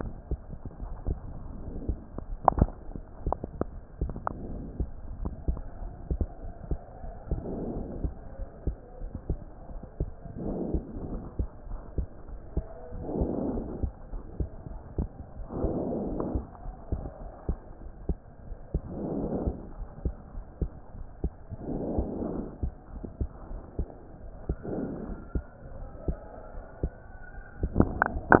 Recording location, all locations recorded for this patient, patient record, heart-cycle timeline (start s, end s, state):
pulmonary valve (PV)
aortic valve (AV)+pulmonary valve (PV)+tricuspid valve (TV)+mitral valve (MV)
#Age: Child
#Sex: Male
#Height: 126.0 cm
#Weight: 25.9 kg
#Pregnancy status: False
#Murmur: Absent
#Murmur locations: nan
#Most audible location: nan
#Systolic murmur timing: nan
#Systolic murmur shape: nan
#Systolic murmur grading: nan
#Systolic murmur pitch: nan
#Systolic murmur quality: nan
#Diastolic murmur timing: nan
#Diastolic murmur shape: nan
#Diastolic murmur grading: nan
#Diastolic murmur pitch: nan
#Diastolic murmur quality: nan
#Outcome: Normal
#Campaign: 2015 screening campaign
0.00	5.80	unannotated
5.80	5.94	S1
5.94	6.10	systole
6.10	6.26	S2
6.26	6.42	diastole
6.42	6.52	S1
6.52	6.68	systole
6.68	6.80	S2
6.80	7.02	diastole
7.02	7.14	S1
7.14	7.26	systole
7.26	7.42	S2
7.42	7.64	diastole
7.64	7.82	S1
7.82	8.00	systole
8.00	8.14	S2
8.14	8.38	diastole
8.38	8.48	S1
8.48	8.62	systole
8.62	8.76	S2
8.76	9.00	diastole
9.00	9.12	S1
9.12	9.28	systole
9.28	9.42	S2
9.42	9.70	diastole
9.70	9.80	S1
9.80	9.96	systole
9.96	10.12	S2
10.12	10.38	diastole
10.38	10.54	S1
10.54	10.68	systole
10.68	10.82	S2
10.82	11.04	diastole
11.04	11.22	S1
11.22	11.38	systole
11.38	11.50	S2
11.50	11.70	diastole
11.70	11.80	S1
11.80	11.94	systole
11.94	12.08	S2
12.08	12.29	diastole
12.29	12.40	S1
12.40	12.52	systole
12.52	12.66	S2
12.66	12.94	diastole
12.94	13.04	S1
13.04	13.16	systole
13.16	13.30	S2
13.30	13.50	diastole
13.50	13.66	S1
13.66	13.80	systole
13.80	13.92	S2
13.92	14.12	diastole
14.12	14.22	S1
14.22	14.36	systole
14.36	14.50	S2
14.50	14.70	diastole
14.70	14.80	S1
14.80	14.96	systole
14.96	15.12	S2
15.12	15.33	diastole
15.33	15.46	S1
15.46	15.58	systole
15.58	15.74	S2
15.74	15.96	diastole
15.96	16.14	S1
16.14	16.32	systole
16.32	16.46	S2
16.46	16.66	diastole
16.66	16.76	S1
16.76	16.88	systole
16.88	17.04	S2
17.04	17.19	diastole
17.19	17.30	S1
17.30	17.44	systole
17.44	17.58	S2
17.58	17.80	diastole
17.80	17.90	S1
17.90	18.08	systole
18.08	18.20	S2
18.20	18.44	diastole
18.44	18.56	S1
18.56	18.70	systole
18.70	18.84	S2
18.84	19.10	diastole
19.10	19.28	S1
19.28	19.44	systole
19.44	19.58	S2
19.58	19.78	diastole
19.78	19.88	S1
19.88	20.04	systole
20.04	20.16	S2
20.16	20.33	diastole
20.33	20.44	S1
20.44	20.58	systole
20.58	20.70	S2
20.70	20.96	diastole
20.96	21.06	S1
21.06	21.20	systole
21.20	21.34	S2
21.34	21.62	diastole
21.62	21.80	S1
21.80	21.94	systole
21.94	22.10	S2
22.10	22.32	diastole
22.32	22.48	S1
22.48	22.62	systole
22.62	22.76	S2
22.76	22.90	diastole
22.90	23.04	S1
23.04	23.16	systole
23.16	23.30	S2
23.30	23.52	diastole
23.52	23.62	S1
23.62	23.78	systole
23.78	23.88	S2
23.88	24.14	diastole
24.14	24.24	S1
24.24	24.46	systole
24.46	24.56	S2
24.56	24.76	diastole
24.76	28.40	unannotated